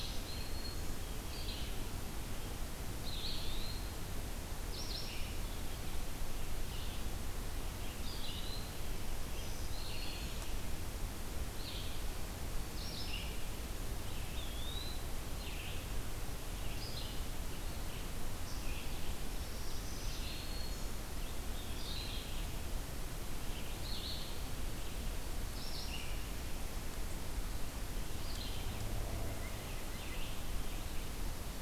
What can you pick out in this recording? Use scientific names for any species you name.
Setophaga virens, Vireo olivaceus, Contopus virens